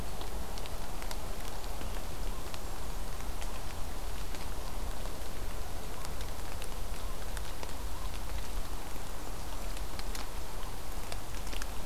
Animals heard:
forest ambience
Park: Marsh-Billings-Rockefeller National Historical Park